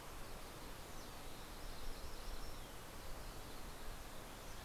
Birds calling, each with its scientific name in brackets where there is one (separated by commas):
Yellow-rumped Warbler (Setophaga coronata)